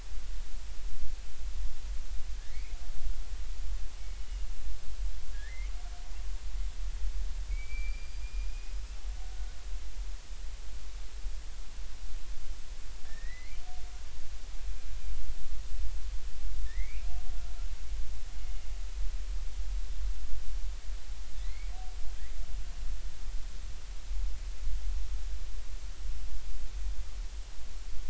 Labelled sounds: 2.3	2.8	killer whale, Bigg's (transient), 1.6 to 2.6 kHz
4.0	4.5	killer whale, Bigg's (transient), 2.2 to 3.0 kHz
5.3	5.7	killer whale, Bigg's (transient), 1.6 to 2.4 kHz
7.5	8.8	killer whale, Bigg's (transient), 2.1 to 4.9 kHz
9.5	9.8	killer whale, Bigg's (transient), 4.8 to 5.1 kHz
13.1	13.6	killer whale, Bigg's (transient), 1.7 to 2.4 kHz
16.6	17.1	killer whale, Bigg's (transient), 1.7 to 2.6 kHz
21.4	21.7	killer whale, Bigg's (transient), 1.9 to 2.4 kHz

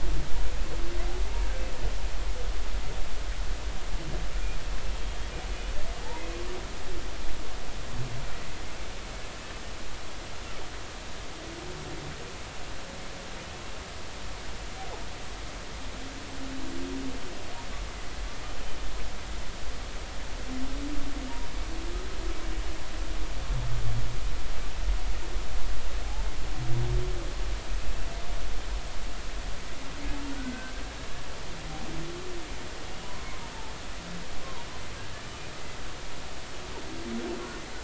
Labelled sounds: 6.1	6.4	humpback whale, 2.4 to 2.6 kHz
30.4	30.7	humpback whale, 1.4 to 1.6 kHz
33.0	33.4	humpback whale, 0.93 to 1.1 kHz

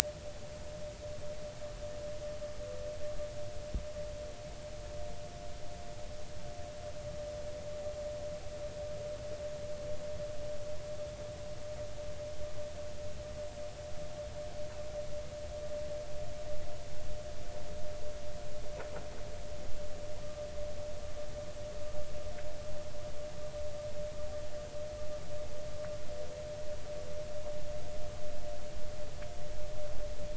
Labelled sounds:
20.2	20.5	vessel noise, 1.1 to 1.2 kHz

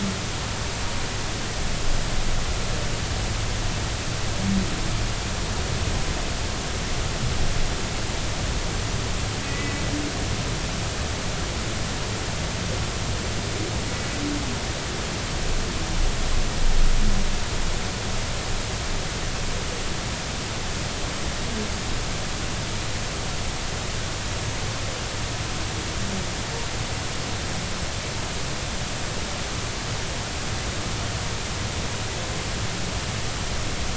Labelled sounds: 9.5	9.8	humpback whale, 1.9 to 2.0 kHz

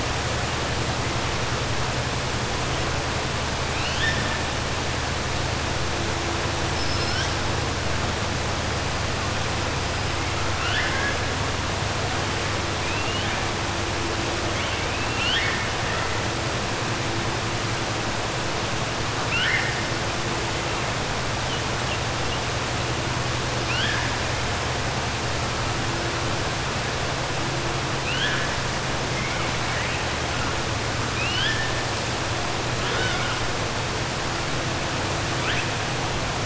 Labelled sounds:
3.7	4.3	killer whale, 1.7 to 5.3 kHz
10.5	11.2	killer whale, 1.1 to 3.5 kHz
12.8	13.4	killer whale, 2.2 to 3.7 kHz
14.9	15.7	killer whale, 1.4 to 5.4 kHz
19.2	19.8	killer whale, 1.4 to 3.4 kHz
31.1	31.7	killer whale, 1.5 to 5.3 kHz

